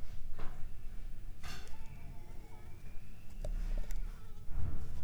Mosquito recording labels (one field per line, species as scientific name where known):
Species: Anopheles arabiensis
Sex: female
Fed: unfed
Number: one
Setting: cup